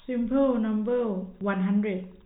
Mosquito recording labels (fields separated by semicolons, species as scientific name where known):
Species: no mosquito; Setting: cup